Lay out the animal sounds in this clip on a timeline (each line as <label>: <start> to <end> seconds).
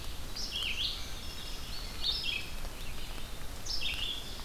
Red-eyed Vireo (Vireo olivaceus): 0.2 to 4.4 seconds
Indigo Bunting (Passerina cyanea): 0.6 to 2.4 seconds
Wood Thrush (Hylocichla mustelina): 0.9 to 1.7 seconds